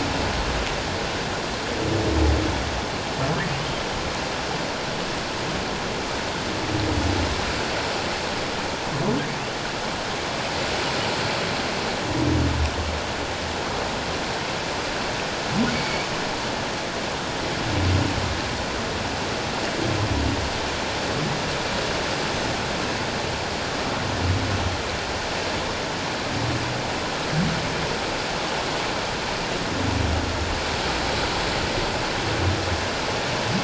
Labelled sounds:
15.7	16.1	humpback whale, 2.2 to 4.6 kHz

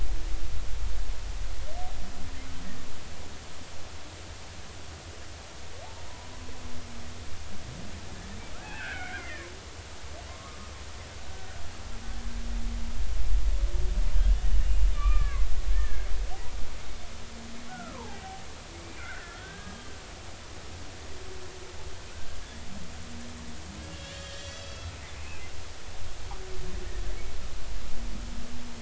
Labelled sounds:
8.5	9.5	killer whale, Bigg's (transient), 1.2 to 2.7 kHz
10.3	11.6	killer whale, Bigg's (transient), 0.99 to 1.6 kHz
14.6	16.1	killer whale, Bigg's (transient), 0.99 to 2.9 kHz
17.7	18.2	killer whale, Bigg's (transient), 0.80 to 1.5 kHz
18.7	19.9	killer whale, Bigg's (transient), 1.3 to 2.4 kHz
23.8	24.9	killer whale, Bigg's (transient), 1.6 to 7.4 kHz
25.2	25.5	killer whale, Bigg's (transient), 2.4 to 2.8 kHz

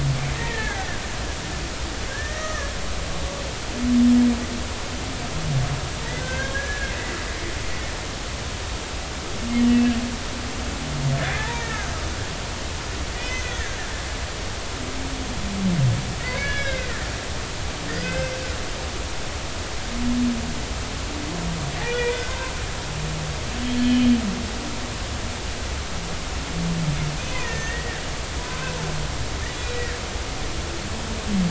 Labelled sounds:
0.3	1.1	humpback whale, 1.5 to 2.2 kHz
2.1	2.7	humpback whale, 1.1 to 2.0 kHz
6.2	6.9	humpback whale, 1.5 to 1.8 kHz
11.2	11.9	humpback whale, 0.83 to 2.0 kHz
13.1	13.8	humpback whale, 1.5 to 2.6 kHz
16.2	17.1	humpback whale, 1.5 to 5.2 kHz
17.9	18.4	humpback whale, 1.4 to 5.3 kHz
22.0	22.5	humpback whale, 0.90 to 2.1 kHz
23.8	24.1	humpback whale, 2.9 to 3.3 kHz
27.2	28.0	humpback whale, 1.5 to 2.6 kHz
28.4	28.7	humpback whale, 0.96 to 1.1 kHz
29.5	30.0	humpback whale, 1.6 to 4.0 kHz

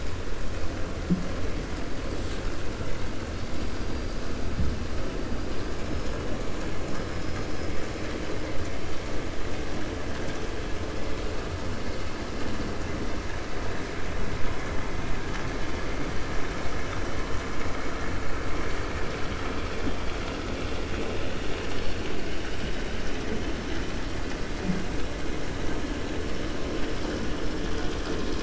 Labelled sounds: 3.3	4.2	killer whale, 4.1 to 5.7 kHz

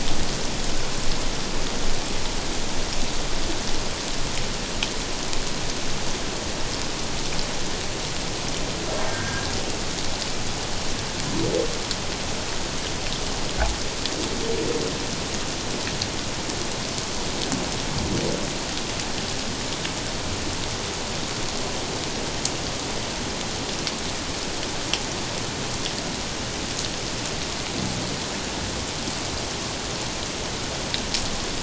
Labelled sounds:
9.1	9.5	humpback whale, 1.5 to 1.7 kHz

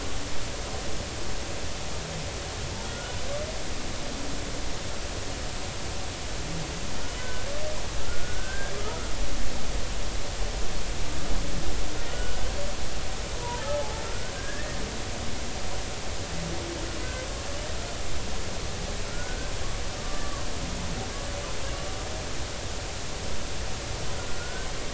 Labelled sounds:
2.8	3.2	humpback whale, 1.4 to 1.5 kHz
7.2	9.1	humpback whale, 1.2 to 1.7 kHz
12.1	12.4	humpback whale, 1.4 to 3.0 kHz
13.4	14.8	humpback whale, 0.80 to 1.9 kHz
19.1	20.5	humpback whale, 0.99 to 1.6 kHz
24.4	24.7	humpback whale, 1.4 to 1.6 kHz

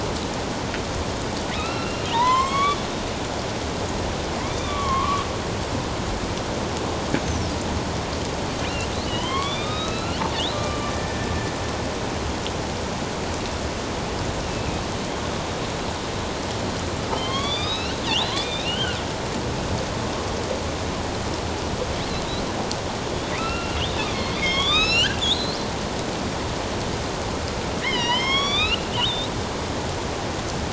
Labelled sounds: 1.5	2.8	killer whale, northern resident, A clan, AB subclan, 0.84 to 5.5 kHz
4.5	5.2	killer whale, northern resident, A clan, AB subclan, 0.97 to 3.7 kHz
7.2	7.5	killer whale, northern resident, A clan, AB subclan, 5.2 to 6.4 kHz
9.1	11.3	killer whale, northern resident, A clan, AB subclan, 0.94 to 4.5 kHz
14.5	14.8	killer whale, northern resident, A clan, AB subclan, 2.3 to 2.7 kHz
17.1	19.0	killer whale, northern resident, A clan, AB subclan, 1.0 to 5.6 kHz
23.3	25.6	killer whale, northern resident, A clan, AB subclan, 1.0 to 7.4 kHz
27.8	29.3	killer whale, northern resident, A clan, AB subclan, 0.91 to 5.8 kHz

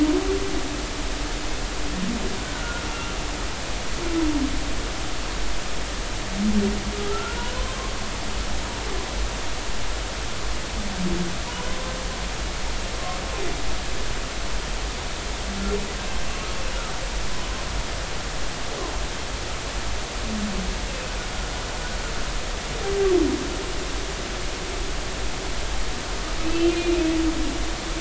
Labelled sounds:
2.5	3.2	humpback whale, 1.3 to 1.5 kHz
7.1	7.9	humpback whale, 0.96 to 3.1 kHz
11.7	11.9	humpback whale, 0.99 to 1.1 kHz
20.9	21.1	humpback whale, 2.5 to 2.8 kHz
26.4	27.2	humpback whale, 2.3 to 2.8 kHz

